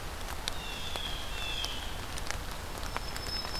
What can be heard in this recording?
Blue Jay, Black-throated Green Warbler